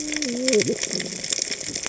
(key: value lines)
label: biophony, cascading saw
recorder: HydroMoth